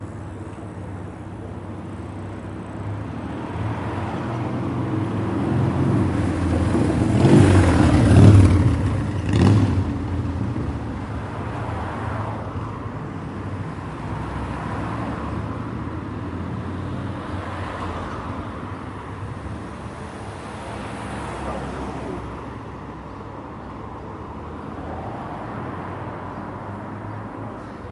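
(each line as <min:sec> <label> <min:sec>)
0:00.0 Traffic noise in the surroundings. 0:27.9
0:06.9 An engine is revving. 0:10.0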